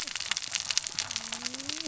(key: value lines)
label: biophony, cascading saw
recorder: SoundTrap 600 or HydroMoth